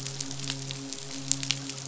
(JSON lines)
{"label": "biophony, midshipman", "recorder": "SoundTrap 500"}